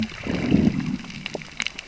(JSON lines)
{"label": "biophony, growl", "recorder": "SoundTrap 600 or HydroMoth"}